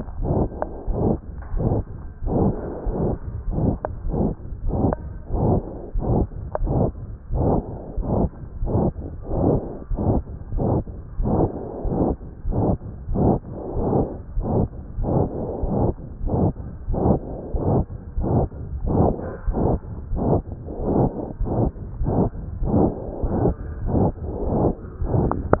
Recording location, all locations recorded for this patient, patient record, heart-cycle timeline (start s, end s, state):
pulmonary valve (PV)
aortic valve (AV)+pulmonary valve (PV)+tricuspid valve (TV)+mitral valve (MV)
#Age: Child
#Sex: Male
#Height: 132.0 cm
#Weight: 36.6 kg
#Pregnancy status: False
#Murmur: Present
#Murmur locations: aortic valve (AV)+mitral valve (MV)+pulmonary valve (PV)+tricuspid valve (TV)
#Most audible location: pulmonary valve (PV)
#Systolic murmur timing: Holosystolic
#Systolic murmur shape: Plateau
#Systolic murmur grading: III/VI or higher
#Systolic murmur pitch: Medium
#Systolic murmur quality: Harsh
#Diastolic murmur timing: nan
#Diastolic murmur shape: nan
#Diastolic murmur grading: nan
#Diastolic murmur pitch: nan
#Diastolic murmur quality: nan
#Outcome: Abnormal
#Campaign: 2014 screening campaign
0.00	9.74	unannotated
9.74	9.92	diastole
9.92	9.98	S1
9.98	10.15	systole
10.15	10.22	S2
10.22	10.52	diastole
10.52	10.60	S1
10.60	10.76	systole
10.76	10.82	S2
10.82	11.20	diastole
11.20	11.29	S1
11.29	11.44	systole
11.44	11.50	S2
11.50	11.84	diastole
11.84	11.94	S1
11.94	12.10	systole
12.10	12.15	S2
12.15	12.45	diastole
12.45	12.55	S1
12.55	12.71	systole
12.71	12.77	S2
12.77	13.12	diastole
13.12	25.60	unannotated